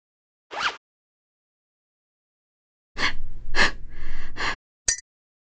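At 0.5 seconds, there is the sound of a zipper. After that, at 2.95 seconds, you can hear breathing. Finally, at 4.85 seconds, glass is heard.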